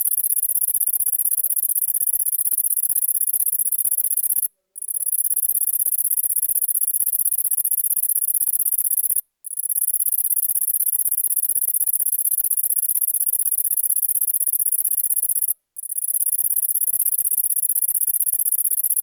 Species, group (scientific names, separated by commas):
Calliphona koenigi, Orthoptera